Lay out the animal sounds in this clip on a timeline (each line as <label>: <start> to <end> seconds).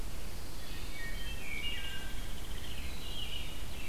Pine Warbler (Setophaga pinus): 0.0 to 1.4 seconds
Wood Thrush (Hylocichla mustelina): 0.5 to 2.2 seconds
Hairy Woodpecker (Dryobates villosus): 1.4 to 3.0 seconds
American Robin (Turdus migratorius): 3.0 to 3.9 seconds
Ovenbird (Seiurus aurocapilla): 3.1 to 3.9 seconds